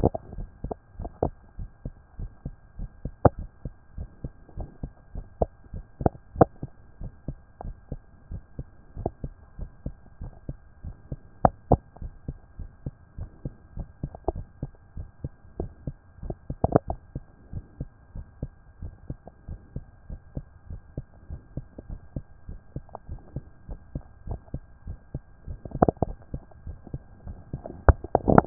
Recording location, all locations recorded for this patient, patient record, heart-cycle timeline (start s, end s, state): tricuspid valve (TV)
aortic valve (AV)+pulmonary valve (PV)+tricuspid valve (TV)+mitral valve (MV)
#Age: Child
#Sex: Male
#Height: 131.0 cm
#Weight: 32.5 kg
#Pregnancy status: False
#Murmur: Absent
#Murmur locations: nan
#Most audible location: nan
#Systolic murmur timing: nan
#Systolic murmur shape: nan
#Systolic murmur grading: nan
#Systolic murmur pitch: nan
#Systolic murmur quality: nan
#Diastolic murmur timing: nan
#Diastolic murmur shape: nan
#Diastolic murmur grading: nan
#Diastolic murmur pitch: nan
#Diastolic murmur quality: nan
#Outcome: Abnormal
#Campaign: 2014 screening campaign
0.00	1.45	unannotated
1.45	1.58	diastole
1.58	1.70	S1
1.70	1.84	systole
1.84	1.94	S2
1.94	2.18	diastole
2.18	2.30	S1
2.30	2.44	systole
2.44	2.54	S2
2.54	2.78	diastole
2.78	2.90	S1
2.90	3.04	systole
3.04	3.14	S2
3.14	3.38	diastole
3.38	3.48	S1
3.48	3.64	systole
3.64	3.74	S2
3.74	3.96	diastole
3.96	4.08	S1
4.08	4.22	systole
4.22	4.32	S2
4.32	4.56	diastole
4.56	4.68	S1
4.68	4.82	systole
4.82	4.90	S2
4.90	5.14	diastole
5.14	5.26	S1
5.26	5.40	systole
5.40	5.50	S2
5.50	5.74	diastole
5.74	5.84	S1
5.84	6.00	systole
6.00	6.12	S2
6.12	6.36	diastole
6.36	6.48	S1
6.48	6.62	systole
6.62	6.70	S2
6.70	7.00	diastole
7.00	7.12	S1
7.12	7.28	systole
7.28	7.36	S2
7.36	7.64	diastole
7.64	7.76	S1
7.76	7.90	systole
7.90	8.00	S2
8.00	8.30	diastole
8.30	8.42	S1
8.42	8.58	systole
8.58	8.66	S2
8.66	8.98	diastole
8.98	9.12	S1
9.12	9.22	systole
9.22	9.32	S2
9.32	9.58	diastole
9.58	9.70	S1
9.70	9.84	systole
9.84	9.94	S2
9.94	10.20	diastole
10.20	10.32	S1
10.32	10.48	systole
10.48	10.58	S2
10.58	10.84	diastole
10.84	10.96	S1
10.96	11.10	systole
11.10	11.18	S2
11.18	11.42	diastole
11.42	28.46	unannotated